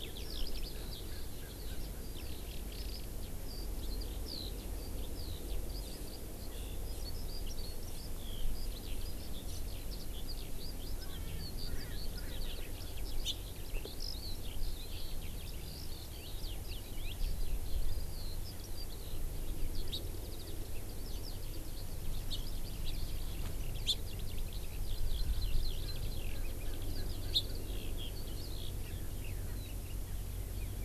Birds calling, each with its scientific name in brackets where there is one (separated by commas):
Erckel's Francolin (Pternistis erckelii), Eurasian Skylark (Alauda arvensis), Hawaii Amakihi (Chlorodrepanis virens)